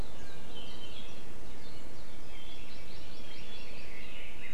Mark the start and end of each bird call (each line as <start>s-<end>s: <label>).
0.2s-1.4s: Iiwi (Drepanis coccinea)
2.3s-4.5s: Red-billed Leiothrix (Leiothrix lutea)
2.5s-3.9s: Hawaii Amakihi (Chlorodrepanis virens)